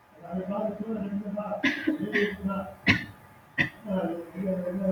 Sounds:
Cough